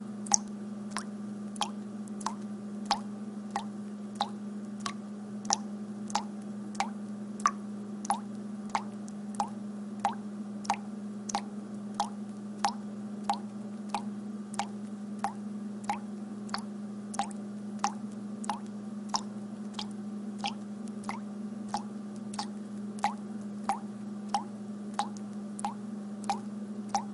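Water dripping from a faucet in a rhythmic pattern. 0:00.0 - 0:27.1

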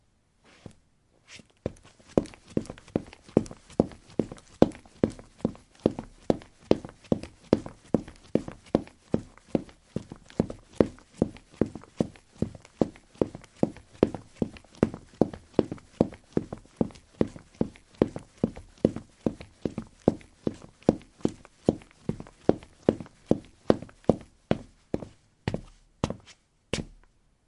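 Footsteps begin. 0:00.6 - 0:01.9
Footsteps. 0:02.0 - 0:26.8
Walking sounds fading away. 0:24.3 - 0:27.0

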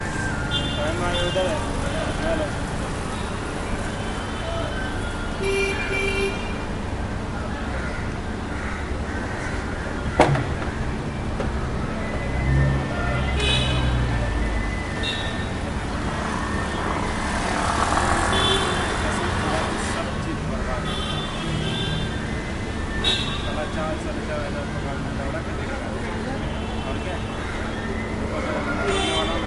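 Street music plays with car horns and background conversation. 0:00.0 - 0:02.7
Busy street with people talking and shouting, honking, and motor sounds. 0:00.0 - 0:29.4
Motor running with someone shouting. 0:02.8 - 0:04.9
A car is honking. 0:05.1 - 0:06.9
Motor running. 0:07.0 - 0:10.0
Banging sounds. 0:10.1 - 0:10.8
A car horn honks. 0:13.1 - 0:14.2
A car horn honks. 0:15.0 - 0:15.7
Motor vehicle sound with honking. 0:16.9 - 0:20.0
Car horns honking at different levels. 0:20.7 - 0:24.5

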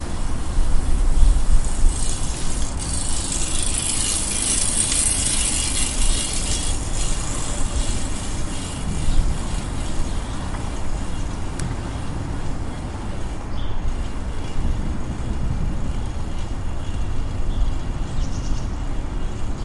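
Background airy noise. 0:00.0 - 0:19.6
Bicycle gears can be heard in the background. 0:01.8 - 0:08.3

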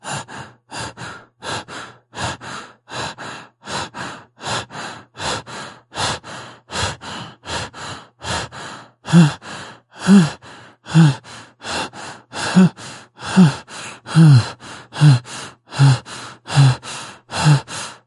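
A person breathes loudly at rapid intervals. 0:00.0 - 0:08.9
A person breathes rapidly and hums loudly. 0:09.0 - 0:11.6
A person breathes loudly at rapid intervals. 0:11.6 - 0:12.2
A person breathes rapidly and hums loudly. 0:12.3 - 0:18.0

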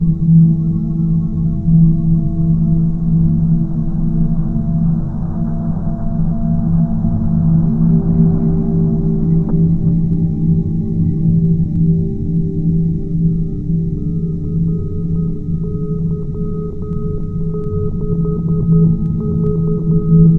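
Rhythmic low bass sounds from an electric guitar. 0:00.0 - 0:20.4
Beeping in Morse code. 0:14.4 - 0:20.4

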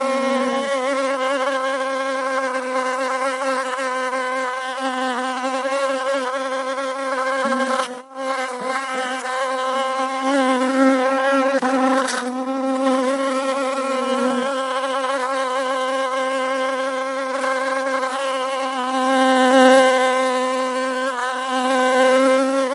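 Insects buzzing continuously. 0:00.0 - 0:22.7

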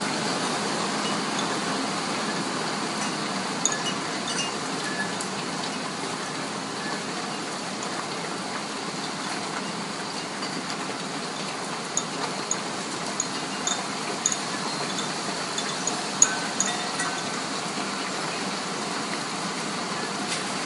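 Faint wind chimes are heard in rainy weather. 0:00.0 - 0:20.7

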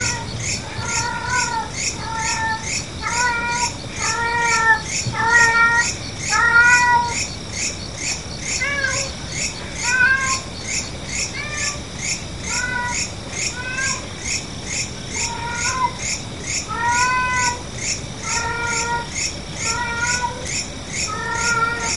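A cat is moaning. 0:00.0 - 0:22.0
Ciccas chirping repeatedly at night. 0:00.0 - 0:22.0
Two cats are vocalizing. 0:08.1 - 0:22.0

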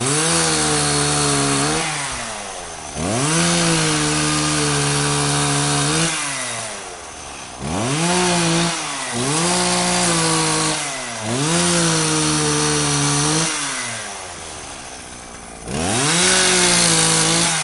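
Repetitive pull-starts of a chainsaw followed by short bursts of engine noise. 0:00.0 - 0:17.6

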